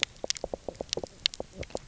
{"label": "biophony, knock croak", "recorder": "SoundTrap 300"}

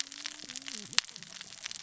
{"label": "biophony, cascading saw", "recorder": "SoundTrap 600 or HydroMoth"}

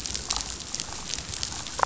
{"label": "biophony, damselfish", "recorder": "SoundTrap 500"}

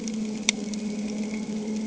{"label": "anthrophony, boat engine", "recorder": "HydroMoth"}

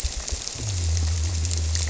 {"label": "biophony", "recorder": "SoundTrap 300"}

